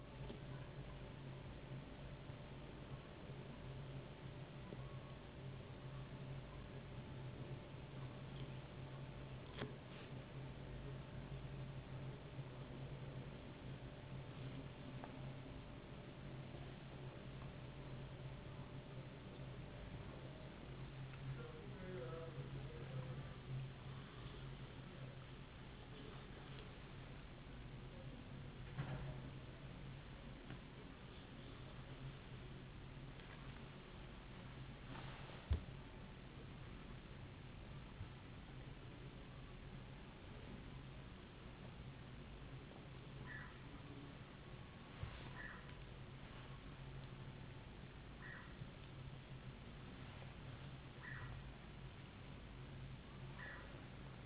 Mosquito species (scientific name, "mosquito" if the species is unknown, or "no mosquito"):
no mosquito